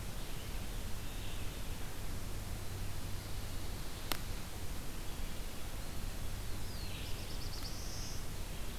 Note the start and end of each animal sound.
0.0s-8.8s: Red-eyed Vireo (Vireo olivaceus)
2.5s-4.3s: Pine Warbler (Setophaga pinus)
6.5s-8.2s: Black-throated Blue Warbler (Setophaga caerulescens)

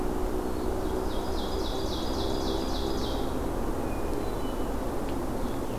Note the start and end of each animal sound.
0.0s-0.7s: Hermit Thrush (Catharus guttatus)
0.0s-5.8s: Red-eyed Vireo (Vireo olivaceus)
0.6s-3.5s: Ovenbird (Seiurus aurocapilla)
3.8s-4.9s: Hermit Thrush (Catharus guttatus)

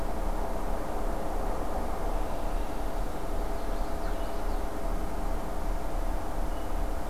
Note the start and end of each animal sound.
2.8s-4.9s: Common Yellowthroat (Geothlypis trichas)

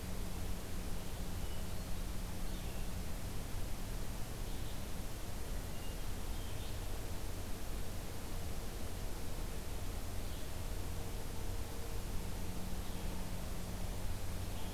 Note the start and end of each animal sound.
0.0s-14.7s: Red-eyed Vireo (Vireo olivaceus)
1.0s-2.0s: Hermit Thrush (Catharus guttatus)
5.4s-6.8s: Hermit Thrush (Catharus guttatus)

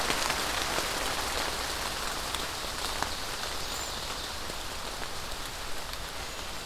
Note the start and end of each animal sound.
3.4s-4.1s: Cedar Waxwing (Bombycilla cedrorum)
6.1s-6.5s: Cedar Waxwing (Bombycilla cedrorum)

